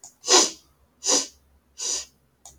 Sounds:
Sniff